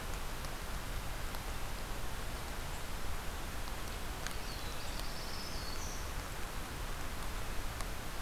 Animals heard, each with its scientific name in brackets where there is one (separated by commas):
Black-throated Blue Warbler (Setophaga caerulescens), Black-throated Green Warbler (Setophaga virens)